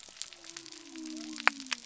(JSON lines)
{"label": "biophony", "recorder": "SoundTrap 300"}